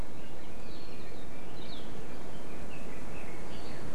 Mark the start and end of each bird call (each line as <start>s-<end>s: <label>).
1.5s-1.8s: Hawaii Akepa (Loxops coccineus)